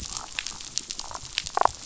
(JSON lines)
{"label": "biophony, damselfish", "recorder": "SoundTrap 500"}